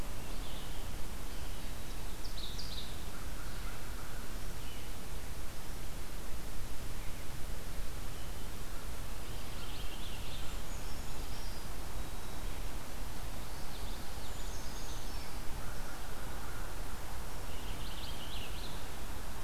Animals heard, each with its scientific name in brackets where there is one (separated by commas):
Red-eyed Vireo (Vireo olivaceus), Purple Finch (Haemorhous purpureus), Common Yellowthroat (Geothlypis trichas), Brown Creeper (Certhia americana), Ovenbird (Seiurus aurocapilla), American Crow (Corvus brachyrhynchos)